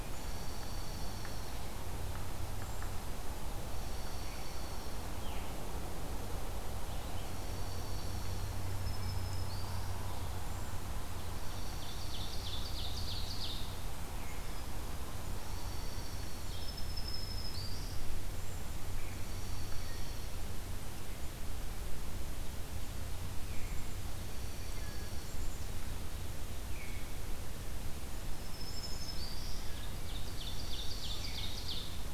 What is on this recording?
Dark-eyed Junco, Veery, Black-throated Green Warbler, Ovenbird, Black-capped Chickadee